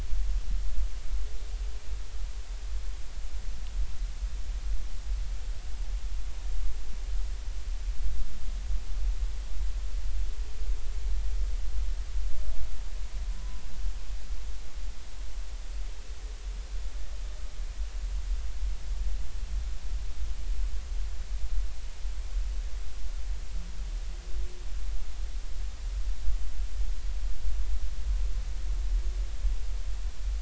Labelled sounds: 13.3	13.6	humpback whale, 0.93 to 1.1 kHz

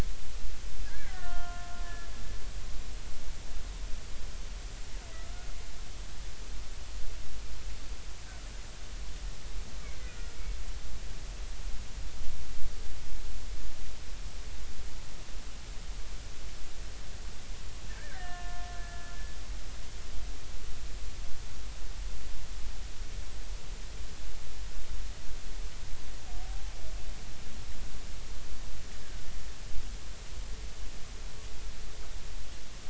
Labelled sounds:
0.8	2.1	killer whale, Bigg's (transient), 0.99 to 3.2 kHz
9.8	10.3	killer whale, Bigg's (transient), 1.4 to 2.4 kHz
17.9	19.2	killer whale, Bigg's (transient), 1.0 to 2.9 kHz
26.4	26.7	killer whale, Bigg's (transient), 0.80 to 0.90 kHz
29.0	29.3	killer whale, Bigg's (transient), 1.4 to 1.7 kHz

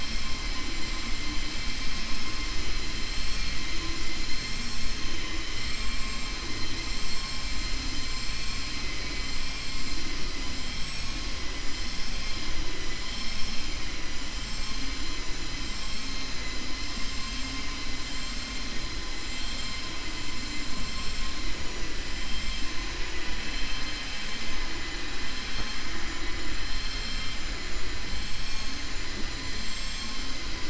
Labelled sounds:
5.1	5.9	vessel noise, 1.1 to 3.9 kHz
8.0	9.3	vessel noise, 1.9 to 5.1 kHz

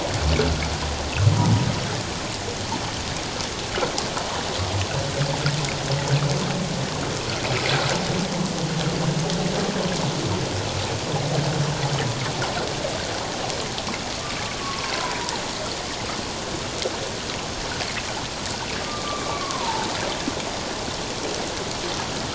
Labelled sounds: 14.6	15.4	humpback whale, 0.78 to 1.2 kHz
18.8	19.9	humpback whale, 0.81 to 1.2 kHz

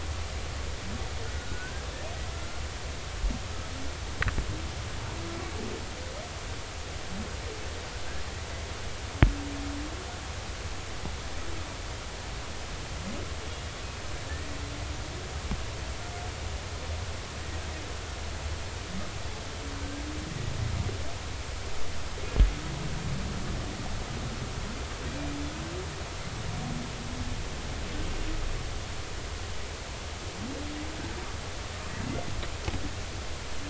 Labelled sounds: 1.4	2.6	humpback whale, 1.3 to 1.7 kHz
14.3	14.6	humpback whale, 1.7 to 2.0 kHz

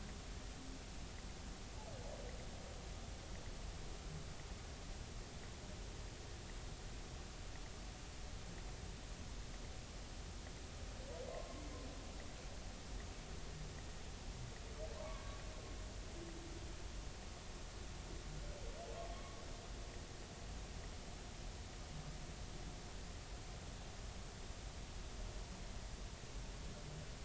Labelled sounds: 11.3	11.6	humpback whale, 0.99 to 1.1 kHz
14.9	15.2	humpback whale, 0.80 to 1.2 kHz
19.1	19.4	humpback whale, 1.0 to 1.2 kHz

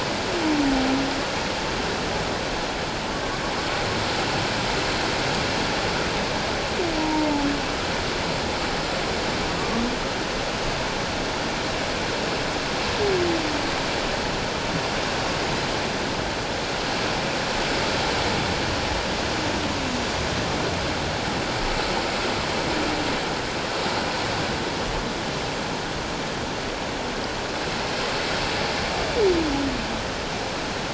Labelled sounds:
7.0	7.5	humpback whale, 0.84 to 0.97 kHz
9.6	9.8	humpback whale, 1.1 to 1.2 kHz

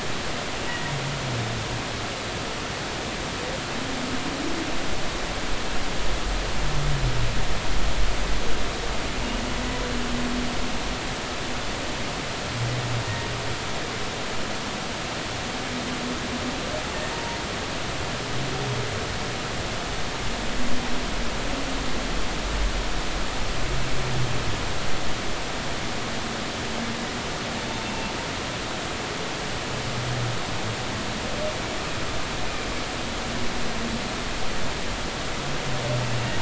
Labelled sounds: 0.7	0.9	humpback whale, 1.9 to 2.0 kHz
14.0	14.3	humpback whale, 1.8 to 2.0 kHz
17.1	17.4	humpback whale, 0.90 to 0.99 kHz

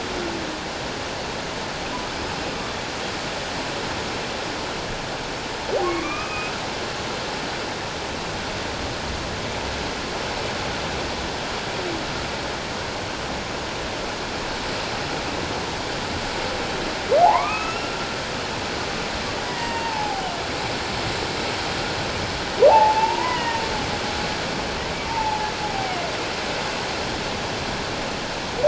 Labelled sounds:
2.1	2.5	humpback whale, 5.0 to 5.1 kHz
5.8	6.5	humpback whale, 1.0 to 2.6 kHz
17.2	18.0	humpback whale, 0.78 to 6.8 kHz
19.4	20.3	humpback whale, 0.78 to 2.8 kHz
22.7	23.6	humpback whale, 0.78 to 2.1 kHz
25.1	26.0	humpback whale, 0.78 to 1.0 kHz

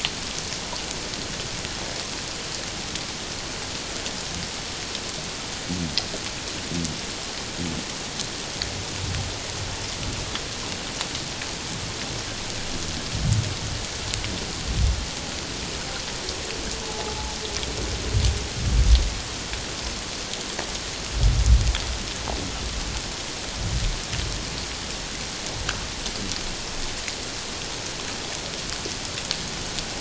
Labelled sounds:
16.9	17.4	humpback whale, 0.81 to 0.97 kHz

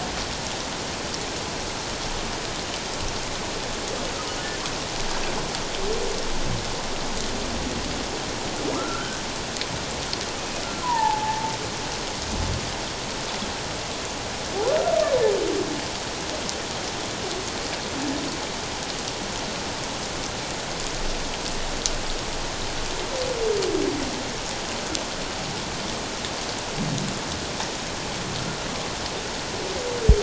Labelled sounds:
8.7	9.2	humpback whale, 1.2 to 1.6 kHz
10.8	11.5	humpback whale, 0.81 to 1.1 kHz

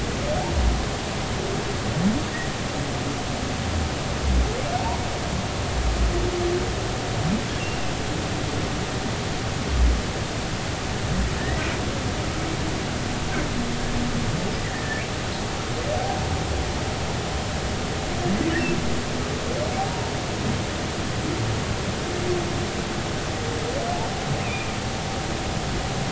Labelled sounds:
7.6	7.9	humpback whale, 2.5 to 2.9 kHz
11.4	11.6	humpback whale, 1.7 to 2.0 kHz
14.6	15.0	humpback whale, 1.7 to 2.0 kHz
24.4	24.7	humpback whale, 2.3 to 2.7 kHz

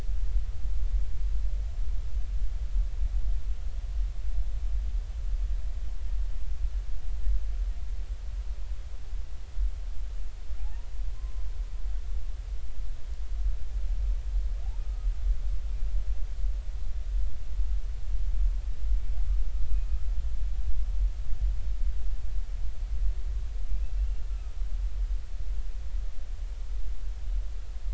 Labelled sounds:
10.6	10.9	humpback whale, 0.80 to 1.0 kHz
14.8	15.1	humpback whale, 1.2 to 1.3 kHz
23.9	24.2	humpback whale, 2.7 to 2.8 kHz

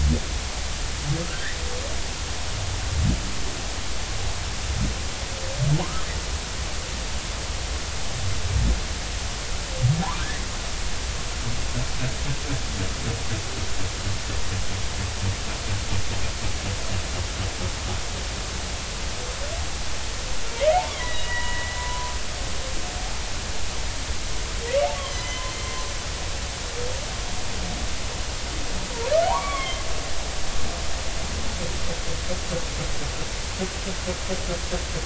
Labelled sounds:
1.2	1.6	humpback whale, 1.2 to 2.0 kHz
20.9	22.1	humpback whale, 0.93 to 2.9 kHz
25.0	25.5	humpback whale, 2.0 to 3.4 kHz
29.2	29.8	humpback whale, 0.80 to 3.4 kHz

